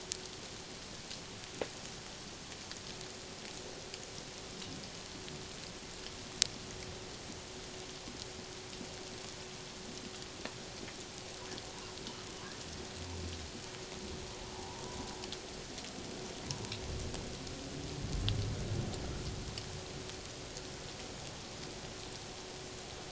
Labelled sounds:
14.5	15.0	humpback whale, 0.78 to 1.0 kHz

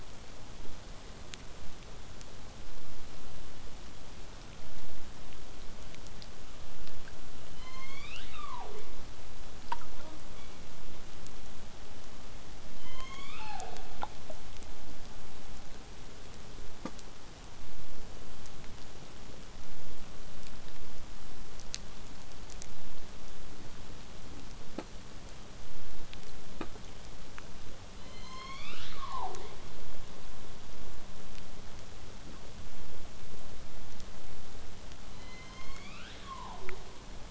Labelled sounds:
7.6	9.1	killer whale, southern resident, J pod, call S01, 0.22 to 7.9 kHz
9.9	10.2	killer whale, southern resident, J pod, call S05, 0.11 to 1.4 kHz
10.3	10.7	killer whale, southern resident, 2.0 to 3.5 kHz
12.8	13.9	killer whale, southern resident, J pod, call S01, 0.25 to 7.2 kHz
28.0	29.6	killer whale, southern resident, J pod, call S01, 0.25 to 8.0 kHz
35.1	36.8	killer whale, southern resident, J pod, call S01, 0.22 to 7.2 kHz

